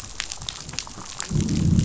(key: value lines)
label: biophony, growl
recorder: SoundTrap 500